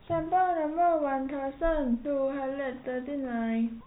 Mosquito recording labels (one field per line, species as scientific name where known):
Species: no mosquito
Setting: cup